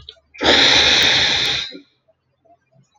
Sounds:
Sniff